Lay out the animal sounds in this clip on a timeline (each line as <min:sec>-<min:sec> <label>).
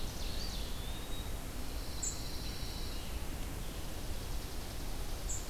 0:00.0-0:05.5 unidentified call
0:00.1-0:01.5 Eastern Wood-Pewee (Contopus virens)
0:01.4-0:03.3 Pine Warbler (Setophaga pinus)
0:03.8-0:05.5 Chipping Sparrow (Spizella passerina)